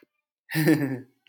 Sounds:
Laughter